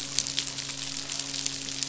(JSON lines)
{"label": "biophony, midshipman", "recorder": "SoundTrap 500"}